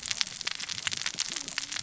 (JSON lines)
{"label": "biophony, cascading saw", "recorder": "SoundTrap 600 or HydroMoth"}